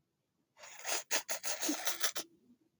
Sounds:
Sneeze